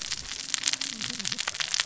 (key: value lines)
label: biophony, cascading saw
recorder: SoundTrap 600 or HydroMoth